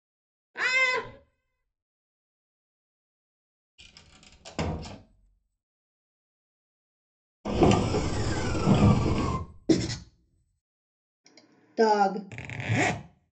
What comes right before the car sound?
door closing